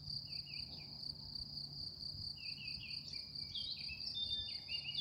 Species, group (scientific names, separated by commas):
Gryllus campestris, Orthoptera